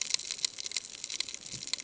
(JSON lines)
{"label": "ambient", "recorder": "HydroMoth"}